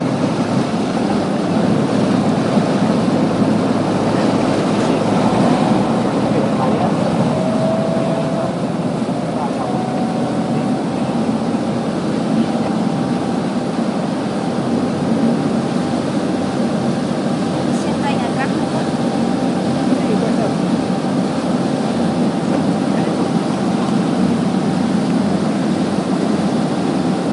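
0.0s Several people are talking in the background. 27.3s
7.4s A motorboat engine runs while several people talk in the background. 27.3s

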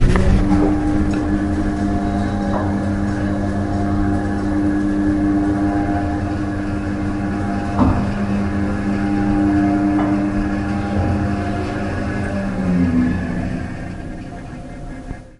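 0.0s A soft whirring sound of an elevator moving. 12.9s
0.4s A short knocking sound. 0.8s
1.1s A short, high-pitched sound. 1.4s
2.4s A metallic clunk. 2.8s
7.7s A single deep metallic clunk. 8.1s
9.8s A metallic clunk. 10.3s
12.9s An elevator comes to a stop. 15.4s

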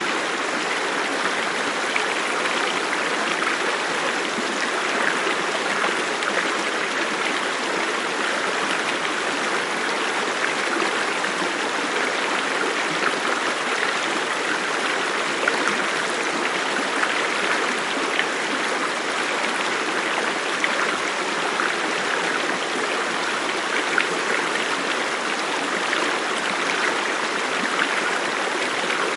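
0.0s Water flows steadily with occasional bubbling sounds. 29.2s

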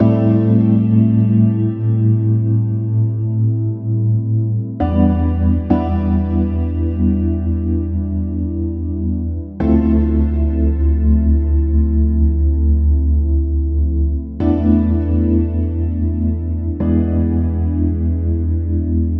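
0.0s Piano chords play smoothly and fade out. 19.2s

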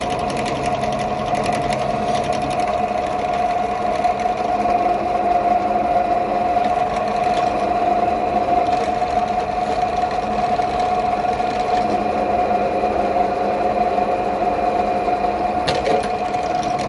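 0.0s A machine produces a drilling sound with a running motor. 16.9s

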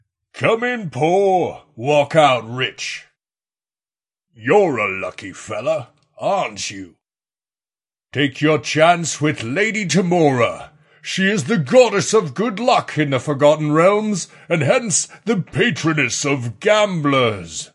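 0.4s A man is speaking with a deep and strong voice indoors. 3.0s
4.4s A deep sound. 6.9s
8.1s A man is speaking with strong emphasis on all letters. 10.7s
11.0s Sound gradually gets louder as the voice becomes deeper and stronger. 17.7s

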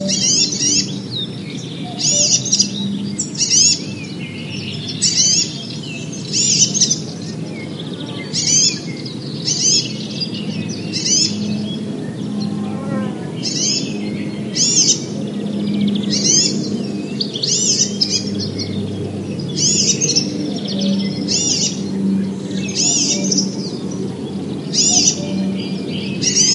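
0.0s A bird chirps with varying high pitches. 1.4s
0.0s A distant, continuous, low, and soft static ambience. 26.5s
0.0s Birds chirping continuously in the distance with overlapping muffled sounds. 26.5s
1.9s A bird making a low-pitched cuckoo sound in the background. 2.4s
2.0s A bird chirps with varying high pitches. 2.7s
3.3s A bird chirps prominently with varying high pitches. 3.8s
5.0s A bird chirps with varying high pitches. 5.4s
6.3s A bird chirps with varying high pitches. 6.9s
8.3s A bird chirps prominently with varying high pitches. 8.8s
9.5s A bird chirps with varying high pitches. 9.8s
10.9s A bird chirps with varying high pitches. 11.3s
12.3s An insect flies by with a high-pitched buzzing sound. 13.3s
13.4s A bird chirps with varying high pitches. 15.0s
15.4s Quiet and low rumbling ambiance like a lawn mower. 26.5s
16.1s A bird chirps with varying high pitches. 16.5s
17.2s A bird chirps with varying high pitches. 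18.2s
19.6s A bird chirps with varying high pitches. 20.2s
21.3s A bird chirps with varying high pitches. 21.7s
22.8s A bird chirps with varying high pitches. 23.5s
24.7s A bird chirps with varying high pitches. 25.2s
26.2s A bird chirps with varying high pitches. 26.5s

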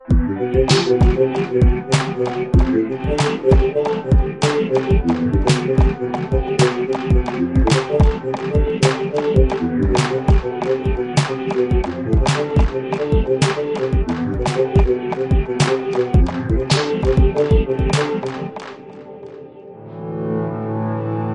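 0.0s A moderately fast-paced beat created with electronic instruments. 21.3s

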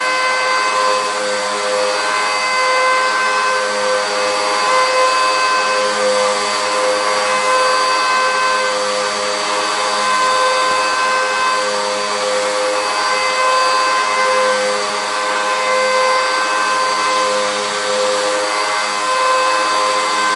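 0.0s A cleaner is vacuuming loudly. 20.4s

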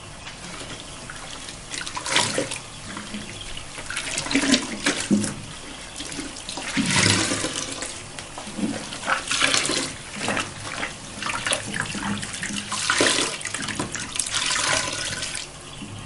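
0.0s White noise is heard in the background. 16.1s
0.7s Repeated splashing water sounds. 15.5s

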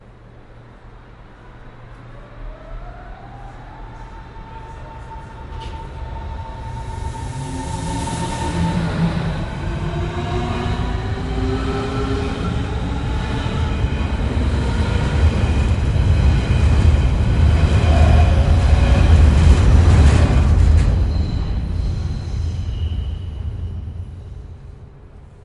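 0.0s A train passing by. 25.4s

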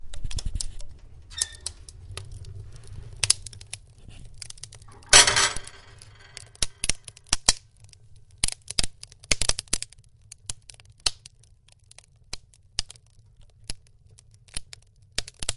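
0.0s A fireplace crackles softly as wood pops and splinters. 15.6s
1.3s An oven door opens, producing a high-pitched metallic sound. 1.7s
5.1s An oven door closes with a slamming metallic sound. 5.6s

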